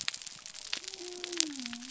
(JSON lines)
{"label": "biophony", "recorder": "SoundTrap 300"}